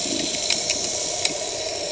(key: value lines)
label: anthrophony, boat engine
recorder: HydroMoth